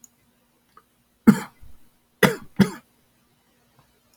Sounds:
Cough